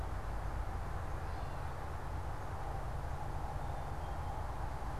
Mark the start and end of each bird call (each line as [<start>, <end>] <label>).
[0.97, 1.77] Gray Catbird (Dumetella carolinensis)
[3.48, 4.58] Black-capped Chickadee (Poecile atricapillus)